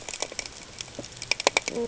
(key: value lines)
label: ambient
recorder: HydroMoth